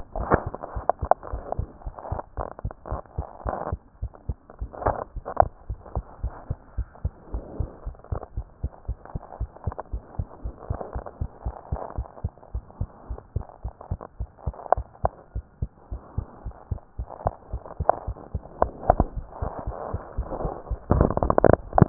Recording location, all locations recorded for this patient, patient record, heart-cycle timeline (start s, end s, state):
pulmonary valve (PV)
aortic valve (AV)+pulmonary valve (PV)+tricuspid valve (TV)+mitral valve (MV)
#Age: Child
#Sex: Female
#Height: nan
#Weight: nan
#Pregnancy status: False
#Murmur: Absent
#Murmur locations: nan
#Most audible location: nan
#Systolic murmur timing: nan
#Systolic murmur shape: nan
#Systolic murmur grading: nan
#Systolic murmur pitch: nan
#Systolic murmur quality: nan
#Diastolic murmur timing: nan
#Diastolic murmur shape: nan
#Diastolic murmur grading: nan
#Diastolic murmur pitch: nan
#Diastolic murmur quality: nan
#Outcome: Normal
#Campaign: 2015 screening campaign
0.00	5.68	unannotated
5.68	5.80	S1
5.80	5.94	systole
5.94	6.04	S2
6.04	6.22	diastole
6.22	6.36	S1
6.36	6.48	systole
6.48	6.58	S2
6.58	6.76	diastole
6.76	6.88	S1
6.88	7.02	systole
7.02	7.12	S2
7.12	7.32	diastole
7.32	7.42	S1
7.42	7.54	systole
7.54	7.68	S2
7.68	7.84	diastole
7.84	7.94	S1
7.94	8.08	systole
8.08	8.20	S2
8.20	8.36	diastole
8.36	8.48	S1
8.48	8.62	systole
8.62	8.72	S2
8.72	8.88	diastole
8.88	8.98	S1
8.98	9.12	systole
9.12	9.22	S2
9.22	9.38	diastole
9.38	9.50	S1
9.50	9.64	systole
9.64	9.76	S2
9.76	9.92	diastole
9.92	10.02	S1
10.02	10.16	systole
10.16	10.26	S2
10.26	10.42	diastole
10.42	10.56	S1
10.56	10.68	systole
10.68	10.78	S2
10.78	10.94	diastole
10.94	11.04	S1
11.04	11.18	systole
11.18	11.30	S2
11.30	11.44	diastole
11.44	11.54	S1
11.54	11.70	systole
11.70	11.80	S2
11.80	11.96	diastole
11.96	12.06	S1
12.06	12.22	systole
12.22	12.34	S2
12.34	12.52	diastole
12.52	12.64	S1
12.64	12.78	systole
12.78	12.88	S2
12.88	13.08	diastole
13.08	13.18	S1
13.18	13.34	systole
13.34	13.46	S2
13.46	13.64	diastole
13.64	13.74	S1
13.74	13.90	systole
13.90	14.00	S2
14.00	14.18	diastole
14.18	14.28	S1
14.28	14.46	systole
14.46	14.56	S2
14.56	21.89	unannotated